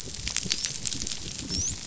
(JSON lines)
{"label": "biophony, dolphin", "recorder": "SoundTrap 500"}